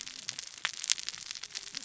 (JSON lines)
{"label": "biophony, cascading saw", "recorder": "SoundTrap 600 or HydroMoth"}